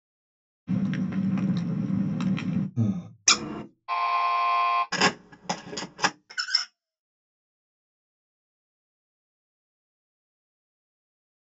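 First at 0.66 seconds, crackling is heard. Then at 2.75 seconds, someone breathes. Next, at 3.26 seconds, the sound of scissors comes through. At 3.88 seconds, you can hear an alarm. Following that, at 4.91 seconds, a camera is audible. Later, at 6.3 seconds, squeaking is heard.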